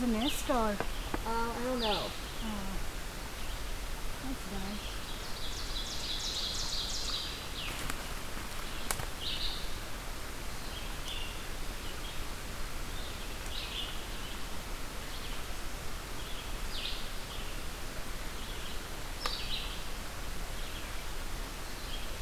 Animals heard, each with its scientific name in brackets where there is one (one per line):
Ovenbird (Seiurus aurocapilla)
Red-eyed Vireo (Vireo olivaceus)